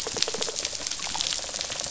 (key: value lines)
label: biophony, rattle response
recorder: SoundTrap 500